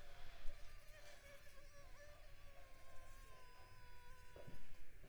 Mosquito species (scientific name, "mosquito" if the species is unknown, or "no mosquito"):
Culex pipiens complex